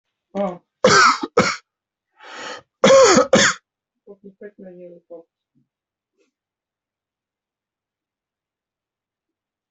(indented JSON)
{
  "expert_labels": [
    {
      "quality": "ok",
      "cough_type": "dry",
      "dyspnea": false,
      "wheezing": false,
      "stridor": false,
      "choking": false,
      "congestion": false,
      "nothing": true,
      "diagnosis": "COVID-19",
      "severity": "mild"
    }
  ]
}